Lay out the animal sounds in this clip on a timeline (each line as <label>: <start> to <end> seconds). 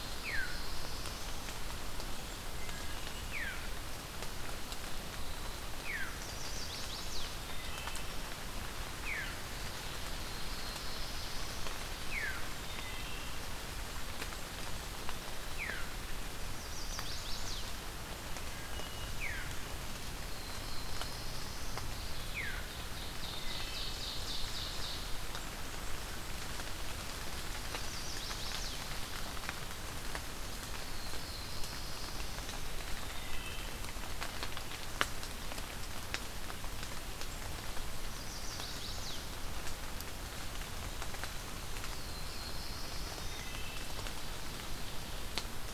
Black-throated Blue Warbler (Setophaga caerulescens): 0.0 to 1.4 seconds
Veery (Catharus fuscescens): 0.2 to 0.6 seconds
Blackburnian Warbler (Setophaga fusca): 2.0 to 3.5 seconds
Wood Thrush (Hylocichla mustelina): 2.5 to 3.1 seconds
Veery (Catharus fuscescens): 3.2 to 3.7 seconds
Eastern Wood-Pewee (Contopus virens): 4.7 to 5.7 seconds
Veery (Catharus fuscescens): 5.6 to 6.4 seconds
Chestnut-sided Warbler (Setophaga pensylvanica): 6.2 to 7.3 seconds
Wood Thrush (Hylocichla mustelina): 7.3 to 8.2 seconds
Veery (Catharus fuscescens): 9.0 to 9.4 seconds
Black-throated Blue Warbler (Setophaga caerulescens): 9.7 to 11.5 seconds
Veery (Catharus fuscescens): 12.0 to 12.5 seconds
Wood Thrush (Hylocichla mustelina): 12.7 to 13.4 seconds
Blackburnian Warbler (Setophaga fusca): 13.6 to 15.0 seconds
Veery (Catharus fuscescens): 15.6 to 15.8 seconds
Chestnut-sided Warbler (Setophaga pensylvanica): 16.4 to 17.6 seconds
Wood Thrush (Hylocichla mustelina): 18.2 to 19.1 seconds
Veery (Catharus fuscescens): 19.0 to 19.6 seconds
Black-throated Blue Warbler (Setophaga caerulescens): 20.0 to 21.9 seconds
Veery (Catharus fuscescens): 22.1 to 22.6 seconds
Ovenbird (Seiurus aurocapilla): 22.6 to 25.1 seconds
Wood Thrush (Hylocichla mustelina): 23.3 to 23.7 seconds
Blackburnian Warbler (Setophaga fusca): 25.2 to 26.6 seconds
Chestnut-sided Warbler (Setophaga pensylvanica): 27.5 to 28.8 seconds
Black-throated Blue Warbler (Setophaga caerulescens): 30.7 to 32.8 seconds
Eastern Wood-Pewee (Contopus virens): 32.6 to 33.2 seconds
Wood Thrush (Hylocichla mustelina): 33.1 to 33.7 seconds
Chestnut-sided Warbler (Setophaga pensylvanica): 38.0 to 39.2 seconds
Black-throated Blue Warbler (Setophaga caerulescens): 41.5 to 43.7 seconds
Wood Thrush (Hylocichla mustelina): 43.2 to 43.9 seconds